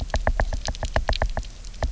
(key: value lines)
label: biophony, knock
recorder: SoundTrap 300